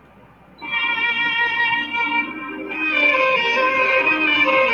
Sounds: Sneeze